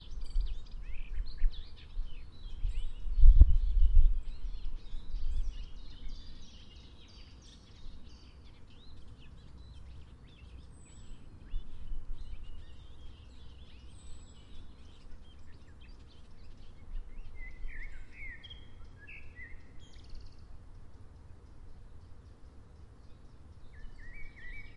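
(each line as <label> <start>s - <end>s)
A soft humming noise. 0.0s - 24.8s
Birds chirping quietly outdoors. 0.0s - 24.8s
A quick, quiet thump. 3.1s - 4.3s
A bird is singing outdoors. 17.3s - 20.3s
A bird is singing outdoors. 23.7s - 24.8s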